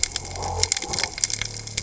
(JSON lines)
{"label": "biophony", "recorder": "HydroMoth"}